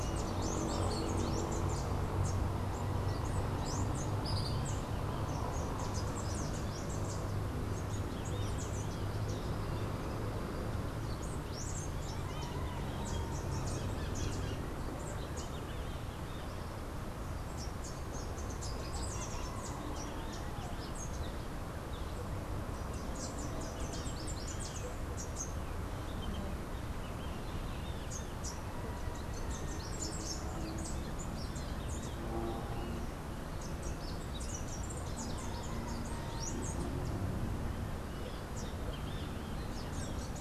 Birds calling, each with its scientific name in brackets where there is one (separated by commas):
Rufous-capped Warbler (Basileuterus rufifrons), Tropical Kingbird (Tyrannus melancholicus)